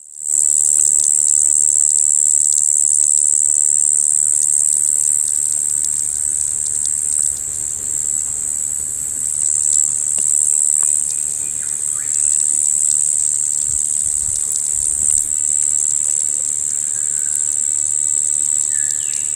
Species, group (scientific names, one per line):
Tamasa tristigma
Cicadidae